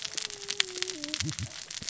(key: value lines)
label: biophony, cascading saw
recorder: SoundTrap 600 or HydroMoth